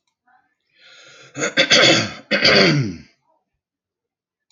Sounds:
Throat clearing